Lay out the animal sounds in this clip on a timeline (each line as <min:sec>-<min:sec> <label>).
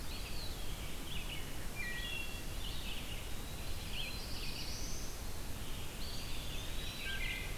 0:00.0-0:00.8 Eastern Wood-Pewee (Contopus virens)
0:00.0-0:07.6 Red-eyed Vireo (Vireo olivaceus)
0:01.6-0:02.5 Wood Thrush (Hylocichla mustelina)
0:02.6-0:03.9 Eastern Wood-Pewee (Contopus virens)
0:03.7-0:05.2 Black-throated Blue Warbler (Setophaga caerulescens)
0:05.9-0:07.4 Eastern Wood-Pewee (Contopus virens)
0:07.0-0:07.6 Wood Thrush (Hylocichla mustelina)